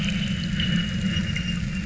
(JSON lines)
{"label": "anthrophony, boat engine", "recorder": "SoundTrap 300"}